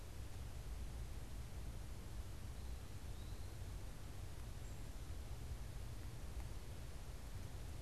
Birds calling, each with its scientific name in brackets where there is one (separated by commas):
Eastern Wood-Pewee (Contopus virens)